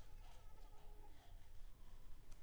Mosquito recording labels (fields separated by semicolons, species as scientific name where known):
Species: Anopheles arabiensis; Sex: female; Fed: unfed; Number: one; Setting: cup